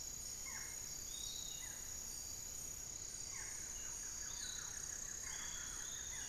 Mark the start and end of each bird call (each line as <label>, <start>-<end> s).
Barred Forest-Falcon (Micrastur ruficollis), 0.0-6.3 s
Piratic Flycatcher (Legatus leucophaius), 0.0-6.3 s
Buff-throated Woodcreeper (Xiphorhynchus guttatus), 2.6-6.3 s
Thrush-like Wren (Campylorhynchus turdinus), 4.7-6.3 s